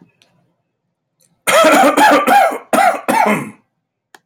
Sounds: Cough